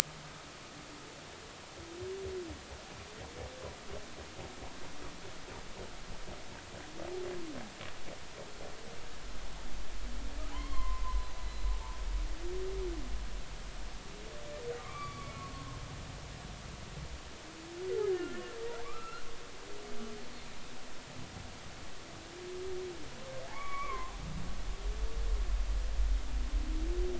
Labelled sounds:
10.5	11.3	humpback whale, 0.93 to 4.4 kHz
14.8	15.8	humpback whale, 0.99 to 4.7 kHz
18.1	18.5	humpback whale, 1.3 to 1.9 kHz
18.8	19.2	humpback whale, 1.1 to 2.9 kHz
23.5	24.2	humpback whale, 0.96 to 2.4 kHz

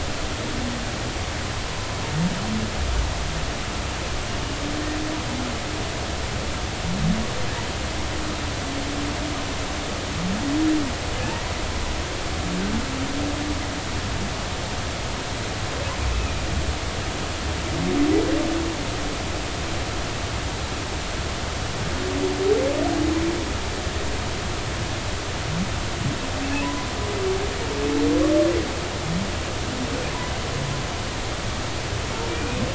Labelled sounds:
26.6	26.9	humpback whale, 0.93 to 1.1 kHz
32.3	32.6	humpback whale, 2.3 to 2.6 kHz

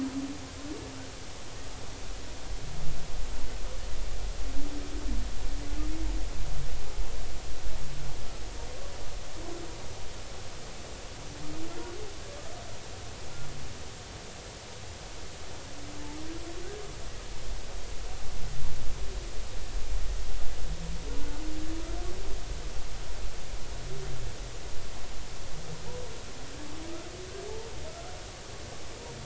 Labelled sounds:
11.7	12.0	humpback whale, 1.3 to 1.5 kHz

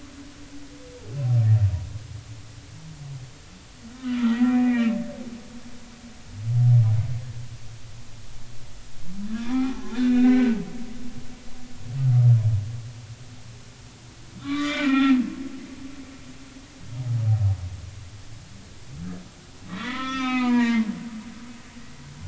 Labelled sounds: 4.0	5.0	humpback whale, 1.2 to 2.5 kHz
9.3	10.6	humpback whale, 0.80 to 3.7 kHz
14.4	15.2	humpback whale, 0.80 to 3.7 kHz
19.6	20.9	humpback whale, 0.86 to 6.1 kHz

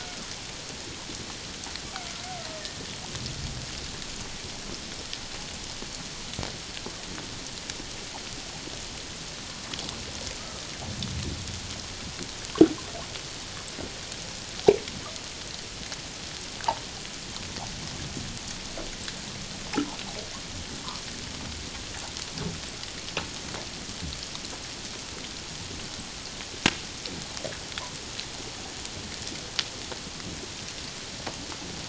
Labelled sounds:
10.4	10.6	killer whale, Bigg's (transient), 1.2 to 1.3 kHz

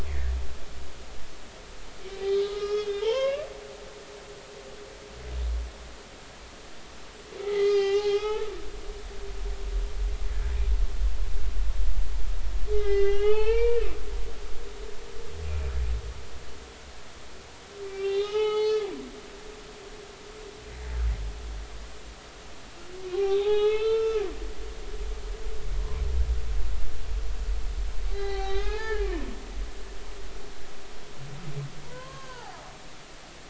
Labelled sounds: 0.1	0.4	humpback whale, 1.7 to 2.3 kHz
2.2	3.5	humpback whale, 0.83 to 5.5 kHz
7.4	8.5	humpback whale, 0.80 to 6.2 kHz
12.7	13.8	humpback whale, 0.80 to 4.7 kHz
17.8	18.8	humpback whale, 0.80 to 6.1 kHz
23.1	24.2	humpback whale, 0.80 to 5.4 kHz
28.1	29.1	humpback whale, 0.80 to 4.9 kHz
31.8	32.6	humpback whale, 0.80 to 1.7 kHz

